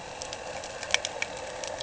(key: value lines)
label: anthrophony, boat engine
recorder: HydroMoth